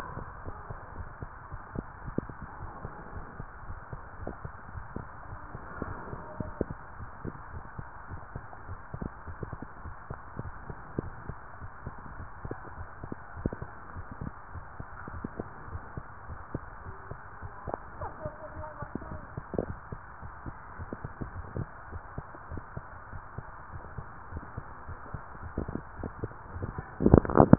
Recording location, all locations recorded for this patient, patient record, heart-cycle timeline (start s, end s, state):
tricuspid valve (TV)
aortic valve (AV)+pulmonary valve (PV)+tricuspid valve (TV)+mitral valve (MV)
#Age: Child
#Sex: Female
#Height: 148.0 cm
#Weight: 61.0 kg
#Pregnancy status: False
#Murmur: Absent
#Murmur locations: nan
#Most audible location: nan
#Systolic murmur timing: nan
#Systolic murmur shape: nan
#Systolic murmur grading: nan
#Systolic murmur pitch: nan
#Systolic murmur quality: nan
#Diastolic murmur timing: nan
#Diastolic murmur shape: nan
#Diastolic murmur grading: nan
#Diastolic murmur pitch: nan
#Diastolic murmur quality: nan
#Outcome: Normal
#Campaign: 2015 screening campaign
0.00	0.26	unannotated
0.26	0.46	diastole
0.46	0.58	S1
0.58	0.68	systole
0.68	0.78	S2
0.78	0.98	diastole
0.98	1.10	S1
1.10	1.20	systole
1.20	1.30	S2
1.30	1.52	diastole
1.52	1.62	S1
1.62	1.76	systole
1.76	1.86	S2
1.86	2.04	diastole
2.04	2.16	S1
2.16	2.30	systole
2.30	2.38	S2
2.38	2.60	diastole
2.60	2.72	S1
2.72	2.82	systole
2.82	2.92	S2
2.92	3.14	diastole
3.14	3.26	S1
3.26	3.38	systole
3.38	3.48	S2
3.48	3.68	diastole
3.68	3.82	S1
3.82	3.94	systole
3.94	4.02	S2
4.02	4.22	diastole
4.22	4.36	S1
4.36	4.44	systole
4.44	4.52	S2
4.52	4.72	diastole
4.72	4.88	S1
4.88	5.02	systole
5.02	5.10	S2
5.10	5.30	diastole
5.30	5.40	S1
5.40	5.54	systole
5.54	5.64	S2
5.64	5.86	diastole
5.86	5.98	S1
5.98	6.10	systole
6.10	6.21	S2
6.21	6.44	diastole
6.44	6.56	S1
6.56	6.68	systole
6.68	6.78	S2
6.78	6.98	diastole
6.98	7.12	S1
7.12	7.24	systole
7.24	7.32	S2
7.32	7.52	diastole
7.52	7.64	S1
7.64	7.78	systole
7.78	7.86	S2
7.86	8.10	diastole
8.10	8.22	S1
8.22	8.34	systole
8.34	8.44	S2
8.44	8.66	diastole
8.66	8.80	S1
8.80	8.98	systole
8.98	9.12	S2
9.12	9.28	diastole
9.28	9.38	S1
9.38	9.50	systole
9.50	9.60	S2
9.60	9.84	diastole
9.84	9.96	S1
9.96	10.10	systole
10.10	10.18	S2
10.18	10.40	diastole
10.40	10.54	S1
10.54	10.68	systole
10.68	10.78	S2
10.78	10.98	diastole
10.98	11.14	S1
11.14	11.28	systole
11.28	11.38	S2
11.38	11.60	diastole
11.60	11.70	S1
11.70	11.84	systole
11.84	11.94	S2
11.94	12.18	diastole
12.18	12.30	S1
12.30	12.44	systole
12.44	12.56	S2
12.56	12.78	diastole
12.78	12.88	S1
12.88	13.02	systole
13.02	13.10	S2
13.10	13.36	diastole
13.36	13.52	S1
13.52	13.62	systole
13.62	13.72	S2
13.72	13.94	diastole
13.94	14.06	S1
14.06	14.22	systole
14.22	14.34	S2
14.34	14.54	diastole
14.54	14.64	S1
14.64	14.76	systole
14.76	14.86	S2
14.86	15.12	diastole
15.12	15.26	S1
15.26	15.40	systole
15.40	15.50	S2
15.50	15.70	diastole
15.70	15.82	S1
15.82	15.98	systole
15.98	16.04	S2
16.04	16.26	diastole
16.26	16.38	S1
16.38	16.52	systole
16.52	16.64	S2
16.64	16.88	diastole
16.88	16.98	S1
16.98	17.12	systole
17.12	17.20	S2
17.20	17.44	diastole
17.44	17.54	S1
17.54	17.68	systole
17.68	17.74	S2
17.74	17.96	diastole
17.96	18.10	S1
18.10	18.24	systole
18.24	18.32	S2
18.32	18.54	diastole
18.54	18.66	S1
18.66	18.78	systole
18.78	18.88	S2
18.88	19.10	diastole
19.10	19.22	S1
19.22	19.34	systole
19.34	19.44	S2
19.44	19.64	diastole
19.64	19.80	S1
19.80	19.88	systole
19.88	20.00	S2
20.00	20.24	diastole
20.24	20.34	S1
20.34	20.46	systole
20.46	20.58	S2
20.58	20.80	diastole
20.80	20.90	S1
20.90	21.02	systole
21.02	21.12	S2
21.12	21.34	diastole
21.34	21.46	S1
21.46	21.54	systole
21.54	21.68	S2
21.68	21.90	diastole
21.90	22.04	S1
22.04	22.16	systole
22.16	22.26	S2
22.26	22.50	diastole
22.50	22.64	S1
22.64	22.74	systole
22.74	22.84	S2
22.84	23.10	diastole
23.10	23.24	S1
23.24	23.36	systole
23.36	23.46	S2
23.46	23.72	diastole
23.72	23.84	S1
23.84	23.96	systole
23.96	24.06	S2
24.06	24.30	diastole
24.30	24.44	S1
24.44	24.56	systole
24.56	24.66	S2
24.66	24.88	diastole
24.88	25.00	S1
25.00	25.12	systole
25.12	25.22	S2
25.22	25.44	diastole
25.44	25.56	S1
25.56	25.70	systole
25.70	25.82	S2
25.82	25.98	diastole
25.98	26.12	S1
26.12	26.22	systole
26.22	26.32	S2
26.32	26.54	diastole
26.54	26.70	S1
26.70	26.76	systole
26.76	26.86	S2
26.86	26.99	diastole
26.99	27.58	unannotated